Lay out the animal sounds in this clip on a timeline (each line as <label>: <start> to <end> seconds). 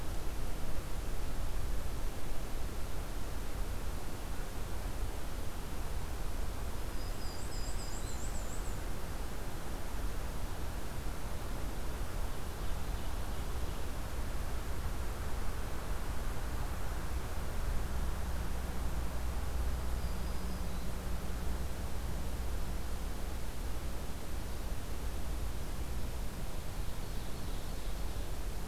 Black-throated Green Warbler (Setophaga virens): 6.9 to 8.4 seconds
Black-and-white Warbler (Mniotilta varia): 7.0 to 8.8 seconds
Black-throated Green Warbler (Setophaga virens): 19.6 to 21.0 seconds
Ovenbird (Seiurus aurocapilla): 26.3 to 28.4 seconds